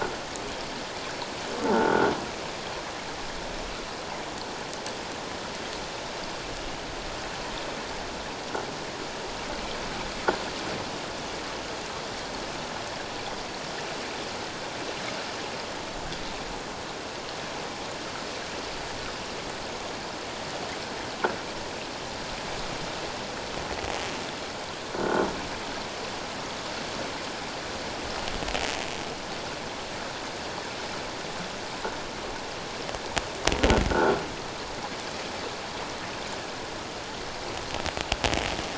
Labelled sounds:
1.6	2.1	croaking sound likely from a nearby submerged object, 0.84 to 1.6 kHz
24.9	25.2	croaking sound likely from a nearby submerged object, 1.3 to 1.6 kHz

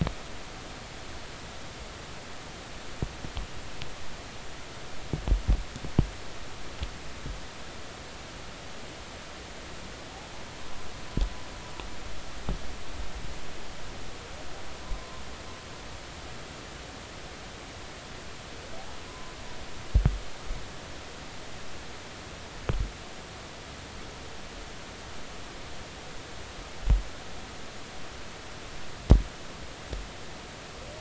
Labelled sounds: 19.1	19.3	humpback whale, 0.96 to 1.1 kHz

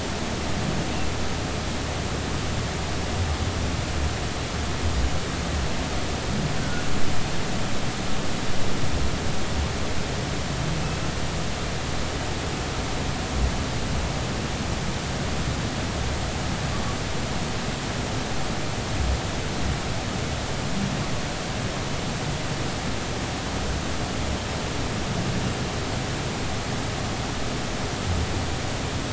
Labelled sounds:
6.6	6.8	humpback whale, 1.4 to 1.6 kHz

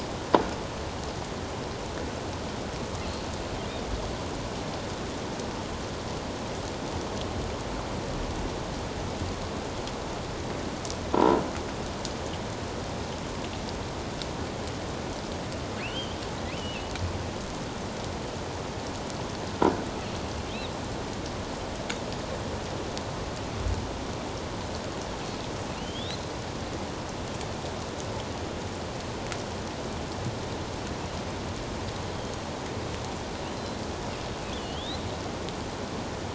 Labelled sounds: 3.6	3.9	killer whale, offshore, 3.1 to 3.8 kHz
11.1	11.4	croaking sound likely from a nearby submerged object, 0.84 to 1.0 kHz
15.8	16.2	killer whale, offshore, 2.0 to 3.4 kHz
25.8	26.2	killer whale, offshore, 2.7 to 4.2 kHz
33.5	33.8	killer whale, offshore, 4.0 to 4.2 kHz
34.6	35.0	killer whale, offshore, 2.8 to 4.2 kHz

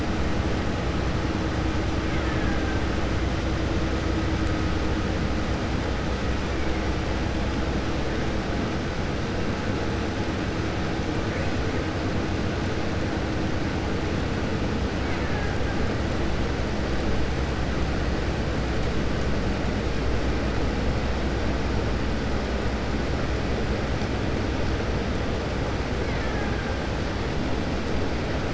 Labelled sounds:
2.0	2.7	killer whale, Bigg's (transient), 0.78 to 2.3 kHz
15.0	15.5	killer whale, Bigg's (transient), 0.80 to 2.7 kHz
26.0	26.6	killer whale, Bigg's (transient), 0.81 to 2.3 kHz

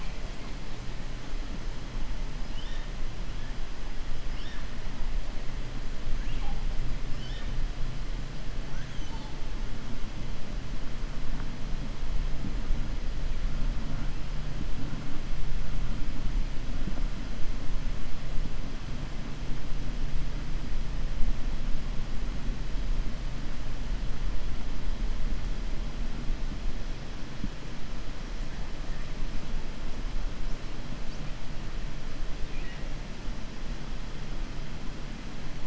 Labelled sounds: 2.4	2.9	killer whale, 1.8 to 5.9 kHz
32.4	32.8	killer whale, 1.9 to 3.7 kHz

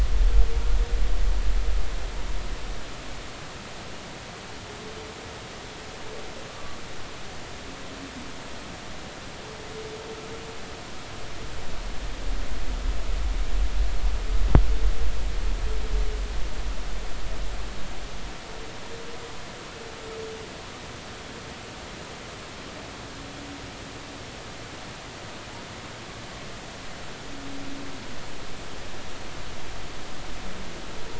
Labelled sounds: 6.5	6.8	humpback whale, 1.1 to 1.2 kHz

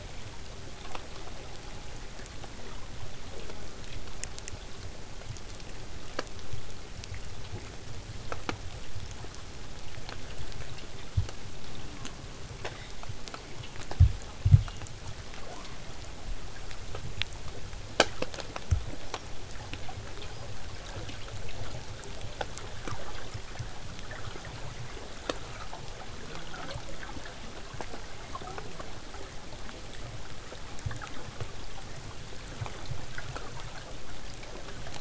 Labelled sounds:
3.2	3.8	killer whale, southern resident, J pod, call S04, 0.12 to 1.4 kHz
15.4	15.8	killer whale, southern resident, 0.27 to 2.2 kHz
19.0	19.3	killer whale, southern resident, 5.3 to 6.1 kHz
20.2	20.5	killer whale, southern resident, 4.6 to 5.3 kHz
29.8	34.8	vessel noise, 0 to 8.0 kHz

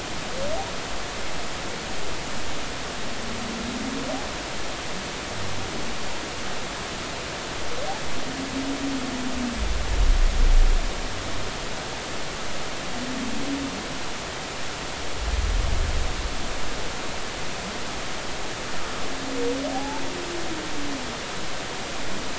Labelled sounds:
19.7	20.0	humpback whale, 0.80 to 0.93 kHz

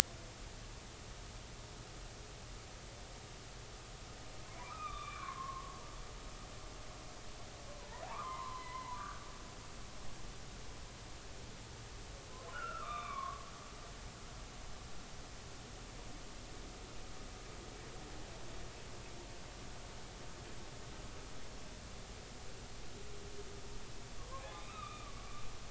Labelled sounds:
4.5	5.8	humpback whale, 0.93 to 3.7 kHz
7.8	9.2	humpback whale, 0.80 to 2.1 kHz
12.5	13.5	humpback whale, 0.96 to 3.7 kHz
24.2	25.4	humpback whale, 0.80 to 3.8 kHz

